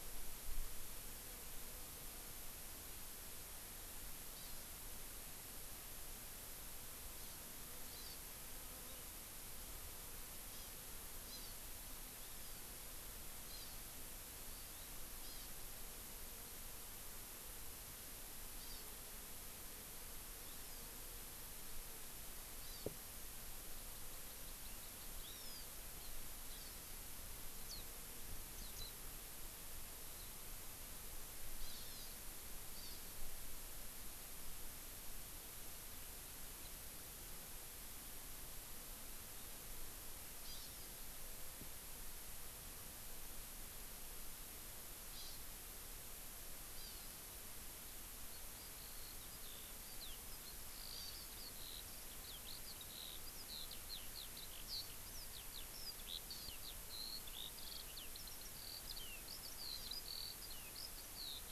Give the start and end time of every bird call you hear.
4.3s-4.7s: Hawaii Amakihi (Chlorodrepanis virens)
7.1s-7.4s: Hawaii Amakihi (Chlorodrepanis virens)
7.9s-8.2s: Hawaii Amakihi (Chlorodrepanis virens)
10.5s-10.7s: Hawaii Amakihi (Chlorodrepanis virens)
11.3s-11.6s: Hawaii Amakihi (Chlorodrepanis virens)
12.2s-12.6s: Hawaii Amakihi (Chlorodrepanis virens)
13.5s-13.8s: Hawaii Amakihi (Chlorodrepanis virens)
14.5s-15.5s: Hawaii Amakihi (Chlorodrepanis virens)
18.5s-18.9s: Hawaii Amakihi (Chlorodrepanis virens)
20.4s-20.9s: Hawaii Amakihi (Chlorodrepanis virens)
22.6s-22.9s: Hawaii Amakihi (Chlorodrepanis virens)
23.9s-25.7s: Hawaii Amakihi (Chlorodrepanis virens)
26.0s-26.2s: Hawaii Amakihi (Chlorodrepanis virens)
26.5s-27.1s: Hawaii Amakihi (Chlorodrepanis virens)
27.7s-27.9s: House Finch (Haemorhous mexicanus)
28.6s-28.9s: House Finch (Haemorhous mexicanus)
31.6s-32.2s: Hawaii Amakihi (Chlorodrepanis virens)
40.4s-40.9s: Hawaii Amakihi (Chlorodrepanis virens)
45.1s-45.4s: Hawaii Amakihi (Chlorodrepanis virens)
46.8s-47.1s: Hawaii Amakihi (Chlorodrepanis virens)
48.3s-61.5s: Eurasian Skylark (Alauda arvensis)
50.9s-51.3s: Hawaii Amakihi (Chlorodrepanis virens)

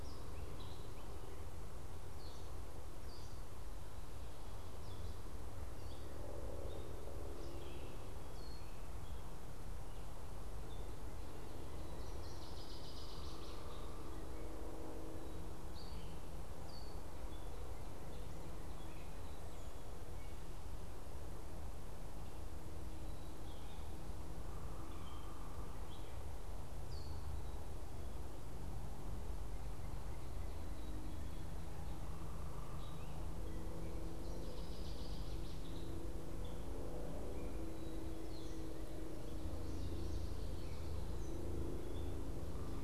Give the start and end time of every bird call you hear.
0.0s-9.7s: Gray Catbird (Dumetella carolinensis)
11.9s-13.8s: Northern Waterthrush (Parkesia noveboracensis)
15.4s-27.3s: Gray Catbird (Dumetella carolinensis)
30.5s-42.8s: Gray Catbird (Dumetella carolinensis)
34.1s-36.2s: Northern Waterthrush (Parkesia noveboracensis)
39.3s-41.0s: Common Yellowthroat (Geothlypis trichas)

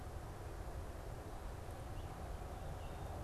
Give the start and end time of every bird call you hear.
1.7s-3.2s: American Robin (Turdus migratorius)

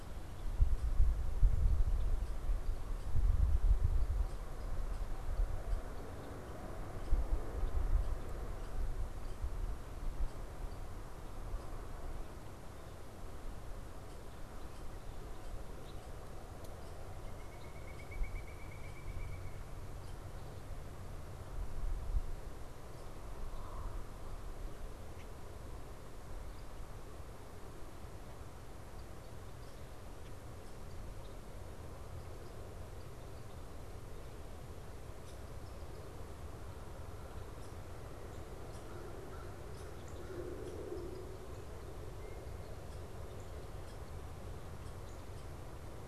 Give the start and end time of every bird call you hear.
17.0s-19.9s: Pileated Woodpecker (Dryocopus pileatus)

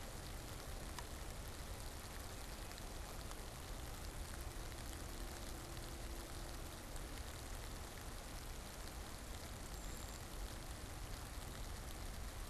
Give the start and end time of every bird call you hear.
9.6s-10.4s: Brown Creeper (Certhia americana)

